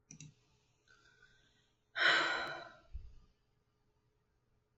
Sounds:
Sigh